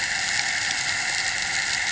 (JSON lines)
{"label": "anthrophony, boat engine", "recorder": "HydroMoth"}